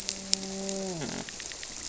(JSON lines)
{"label": "biophony, grouper", "recorder": "SoundTrap 300"}